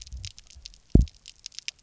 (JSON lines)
{"label": "biophony, double pulse", "recorder": "SoundTrap 300"}